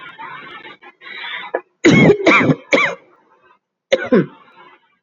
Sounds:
Laughter